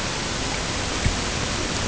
{"label": "ambient", "recorder": "HydroMoth"}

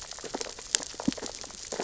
{"label": "biophony, sea urchins (Echinidae)", "recorder": "SoundTrap 600 or HydroMoth"}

